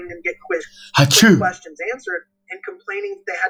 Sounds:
Sneeze